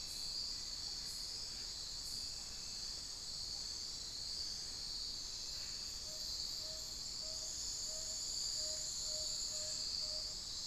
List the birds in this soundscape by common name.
Tawny-bellied Screech-Owl